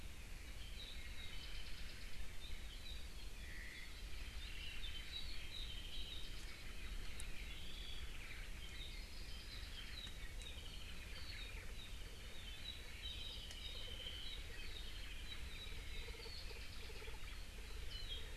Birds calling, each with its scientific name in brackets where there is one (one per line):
Apapane (Himatione sanguinea)
Omao (Myadestes obscurus)